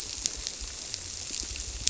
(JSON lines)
{"label": "biophony", "recorder": "SoundTrap 300"}